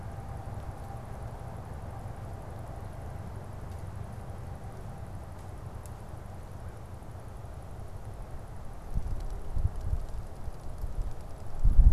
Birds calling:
American Crow (Corvus brachyrhynchos)

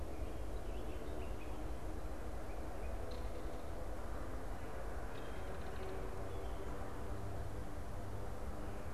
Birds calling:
Belted Kingfisher (Megaceryle alcyon), unidentified bird

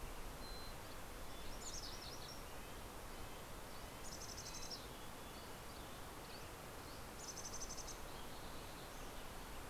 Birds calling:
MacGillivray's Warbler (Geothlypis tolmiei), Red-breasted Nuthatch (Sitta canadensis), Mountain Chickadee (Poecile gambeli), Dusky Flycatcher (Empidonax oberholseri)

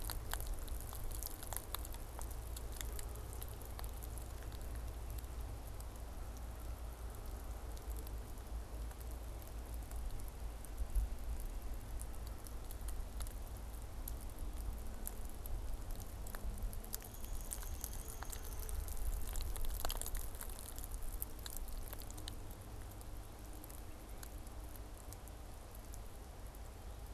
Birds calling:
Downy Woodpecker (Dryobates pubescens)

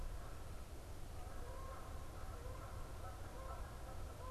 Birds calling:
Canada Goose (Branta canadensis)

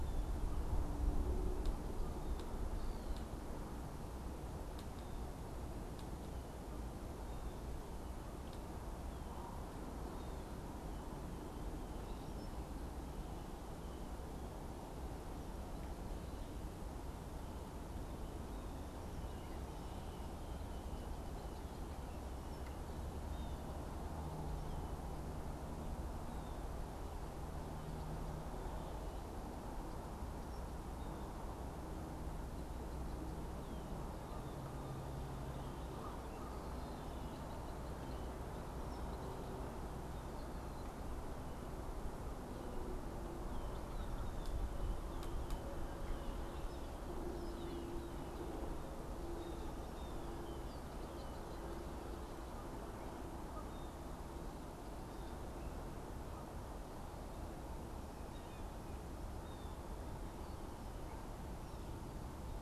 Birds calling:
Canada Goose (Branta canadensis), Blue Jay (Cyanocitta cristata), Red-winged Blackbird (Agelaius phoeniceus)

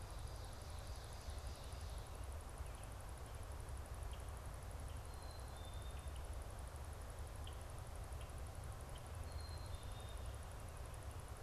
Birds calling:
Ovenbird (Seiurus aurocapilla), Black-capped Chickadee (Poecile atricapillus), Red-winged Blackbird (Agelaius phoeniceus)

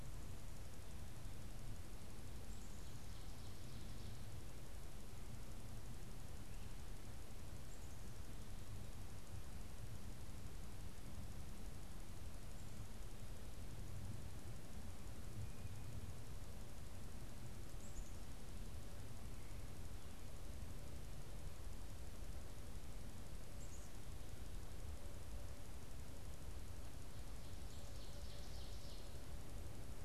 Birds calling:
Black-capped Chickadee (Poecile atricapillus), Ovenbird (Seiurus aurocapilla)

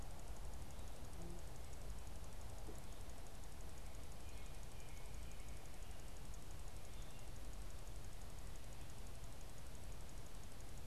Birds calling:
unidentified bird, American Robin (Turdus migratorius)

